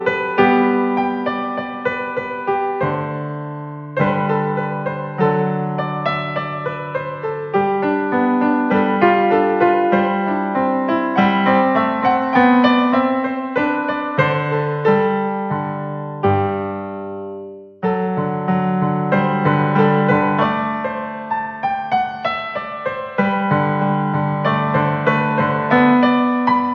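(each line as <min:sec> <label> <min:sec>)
0:00.0 An electric piano plays classical music composed of various tones. 0:26.7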